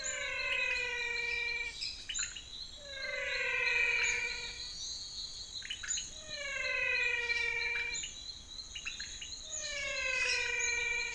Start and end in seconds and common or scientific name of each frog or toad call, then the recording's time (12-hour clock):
0.0	11.1	pointedbelly frog
0.0	11.1	menwig frog
10.1	10.8	lesser tree frog
5:45pm